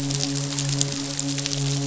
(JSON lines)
{"label": "biophony, midshipman", "recorder": "SoundTrap 500"}